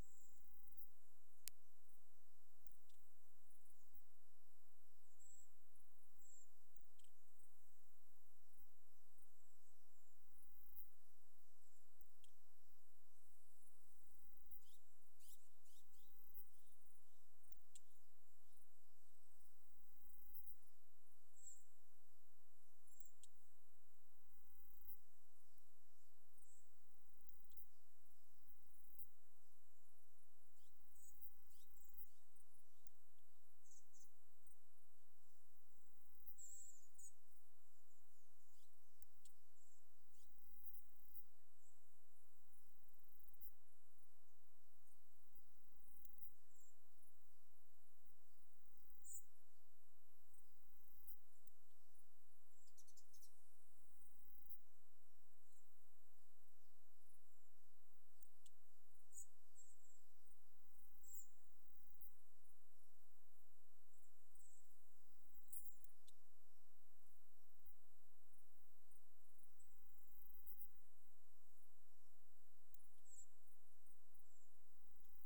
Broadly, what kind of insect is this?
orthopteran